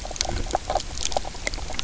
{"label": "biophony, knock croak", "recorder": "SoundTrap 300"}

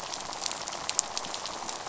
{"label": "biophony, rattle", "recorder": "SoundTrap 500"}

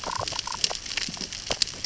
{"label": "biophony, damselfish", "recorder": "SoundTrap 600 or HydroMoth"}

